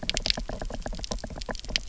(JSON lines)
{"label": "biophony, knock", "recorder": "SoundTrap 300"}